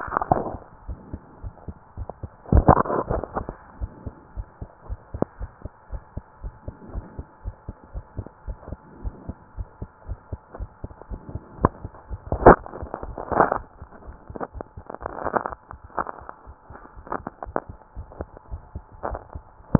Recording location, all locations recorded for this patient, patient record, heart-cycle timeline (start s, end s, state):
pulmonary valve (PV)
pulmonary valve (PV)+tricuspid valve (TV)
#Age: Child
#Sex: Male
#Height: 161.0 cm
#Weight: 68.4 kg
#Pregnancy status: False
#Murmur: Absent
#Murmur locations: nan
#Most audible location: nan
#Systolic murmur timing: nan
#Systolic murmur shape: nan
#Systolic murmur grading: nan
#Systolic murmur pitch: nan
#Systolic murmur quality: nan
#Diastolic murmur timing: nan
#Diastolic murmur shape: nan
#Diastolic murmur grading: nan
#Diastolic murmur pitch: nan
#Diastolic murmur quality: nan
#Outcome: Normal
#Campaign: 2015 screening campaign
0.00	3.76	unannotated
3.76	3.94	S1
3.94	4.04	systole
4.04	4.16	S2
4.16	4.34	diastole
4.34	4.48	S1
4.48	4.58	systole
4.58	4.68	S2
4.68	4.88	diastole
4.88	5.00	S1
5.00	5.10	systole
5.10	5.22	S2
5.22	5.40	diastole
5.40	5.52	S1
5.52	5.60	systole
5.60	5.70	S2
5.70	5.92	diastole
5.92	6.02	S1
6.02	6.12	systole
6.12	6.24	S2
6.24	6.42	diastole
6.42	6.54	S1
6.54	6.64	systole
6.64	6.76	S2
6.76	6.92	diastole
6.92	7.08	S1
7.08	7.16	systole
7.16	7.26	S2
7.26	7.44	diastole
7.44	7.56	S1
7.56	7.64	systole
7.64	7.76	S2
7.76	7.94	diastole
7.94	8.06	S1
8.06	8.16	systole
8.16	8.26	S2
8.26	8.46	diastole
8.46	8.58	S1
8.58	8.66	systole
8.66	8.78	S2
8.78	9.00	diastole
9.00	9.18	S1
9.18	9.26	systole
9.26	9.36	S2
9.36	9.58	diastole
9.58	9.68	S1
9.68	9.78	systole
9.78	9.88	S2
9.88	10.06	diastole
10.06	10.20	S1
10.20	10.28	systole
10.28	10.40	S2
10.40	10.58	diastole
10.58	10.70	S1
10.70	10.80	systole
10.80	10.90	S2
10.90	11.10	diastole
11.10	11.24	S1
11.24	19.79	unannotated